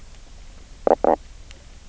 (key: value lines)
label: biophony, knock croak
recorder: SoundTrap 300